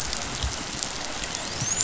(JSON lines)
{"label": "biophony, dolphin", "recorder": "SoundTrap 500"}